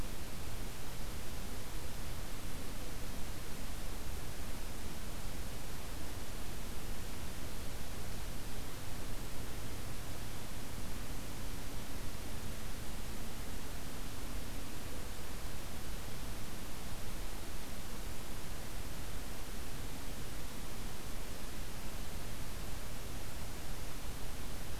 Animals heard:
forest ambience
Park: Acadia National Park